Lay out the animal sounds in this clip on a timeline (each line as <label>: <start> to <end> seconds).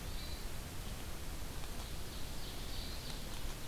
Hermit Thrush (Catharus guttatus): 0.0 to 0.6 seconds
Ovenbird (Seiurus aurocapilla): 1.4 to 3.7 seconds
Hermit Thrush (Catharus guttatus): 2.6 to 3.1 seconds